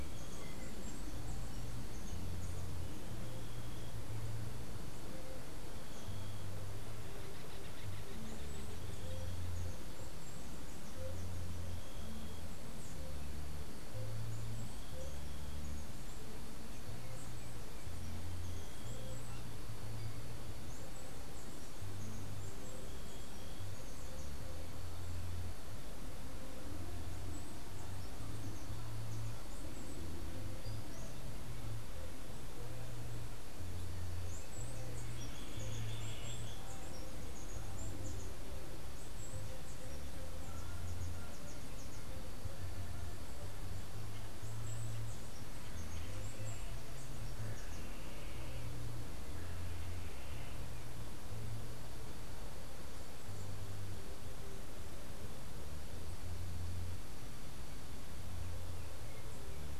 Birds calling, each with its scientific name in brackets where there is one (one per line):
Acorn Woodpecker (Melanerpes formicivorus)
Andean Emerald (Uranomitra franciae)